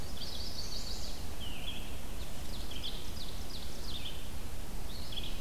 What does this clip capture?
Chestnut-sided Warbler, Red-eyed Vireo, Ovenbird